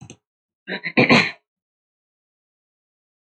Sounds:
Throat clearing